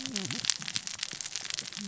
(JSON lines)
{"label": "biophony, cascading saw", "recorder": "SoundTrap 600 or HydroMoth"}